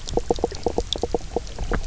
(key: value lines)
label: biophony, knock croak
recorder: SoundTrap 300